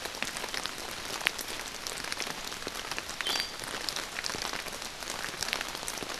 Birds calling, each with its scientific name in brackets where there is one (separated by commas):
Iiwi (Drepanis coccinea)